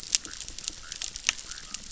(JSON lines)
{"label": "biophony, chorus", "recorder": "SoundTrap 600"}